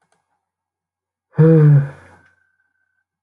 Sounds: Sigh